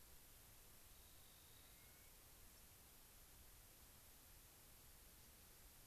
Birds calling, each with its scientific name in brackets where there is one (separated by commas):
White-crowned Sparrow (Zonotrichia leucophrys), Clark's Nutcracker (Nucifraga columbiana), Rock Wren (Salpinctes obsoletus)